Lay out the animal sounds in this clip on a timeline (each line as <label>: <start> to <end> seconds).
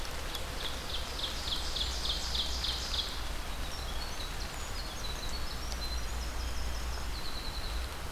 Ovenbird (Seiurus aurocapilla): 0.0 to 3.4 seconds
Blackburnian Warbler (Setophaga fusca): 1.2 to 2.3 seconds
Winter Wren (Troglodytes hiemalis): 3.5 to 8.0 seconds